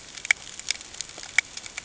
{"label": "ambient", "recorder": "HydroMoth"}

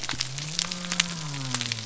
{"label": "biophony", "recorder": "SoundTrap 300"}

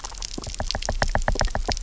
{"label": "biophony, knock", "recorder": "SoundTrap 300"}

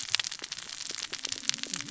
{"label": "biophony, cascading saw", "recorder": "SoundTrap 600 or HydroMoth"}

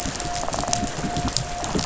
{"label": "biophony", "recorder": "SoundTrap 500"}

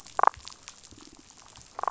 {"label": "biophony", "recorder": "SoundTrap 500"}
{"label": "biophony, damselfish", "recorder": "SoundTrap 500"}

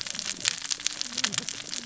{"label": "biophony, cascading saw", "recorder": "SoundTrap 600 or HydroMoth"}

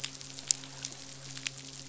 {"label": "biophony, midshipman", "recorder": "SoundTrap 500"}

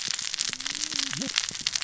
{"label": "biophony, cascading saw", "recorder": "SoundTrap 600 or HydroMoth"}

